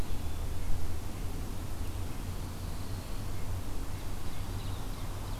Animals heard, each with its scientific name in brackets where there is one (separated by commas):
Ovenbird (Seiurus aurocapilla)